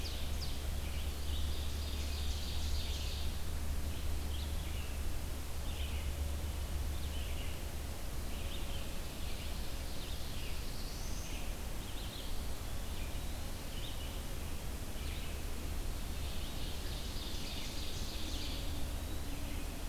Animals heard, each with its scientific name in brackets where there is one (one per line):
Ovenbird (Seiurus aurocapilla)
Eastern Wood-Pewee (Contopus virens)
Black-throated Blue Warbler (Setophaga caerulescens)
Red-eyed Vireo (Vireo olivaceus)